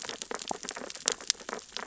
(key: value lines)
label: biophony, sea urchins (Echinidae)
recorder: SoundTrap 600 or HydroMoth